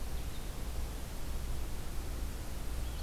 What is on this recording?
forest ambience